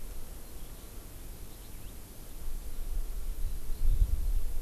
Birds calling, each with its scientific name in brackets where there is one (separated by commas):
Eurasian Skylark (Alauda arvensis)